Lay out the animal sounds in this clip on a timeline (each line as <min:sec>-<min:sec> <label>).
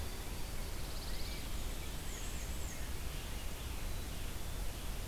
0:00.6-0:01.5 Pine Warbler (Setophaga pinus)
0:01.7-0:02.9 Black-and-white Warbler (Mniotilta varia)